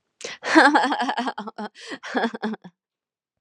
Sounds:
Laughter